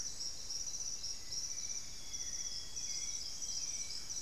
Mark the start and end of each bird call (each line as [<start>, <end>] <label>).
[0.00, 4.22] Hauxwell's Thrush (Turdus hauxwelli)
[1.69, 3.99] Amazonian Grosbeak (Cyanoloxia rothschildii)